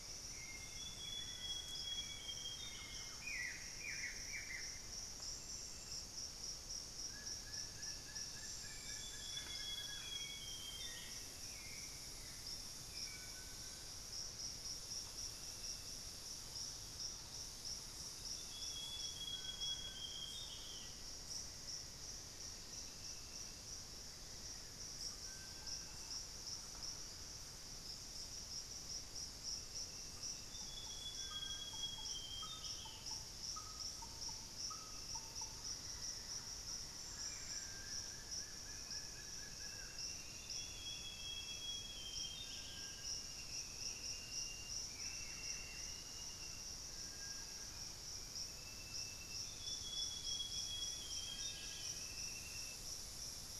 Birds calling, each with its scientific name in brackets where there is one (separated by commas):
Black-faced Antthrush (Formicarius analis), Plain-winged Antshrike (Thamnophilus schistaceus), unidentified bird, Amazonian Grosbeak (Cyanoloxia rothschildii), Buff-throated Woodcreeper (Xiphorhynchus guttatus), Thrush-like Wren (Campylorhynchus turdinus), Hauxwell's Thrush (Turdus hauxwelli)